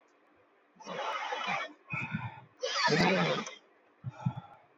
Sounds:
Sniff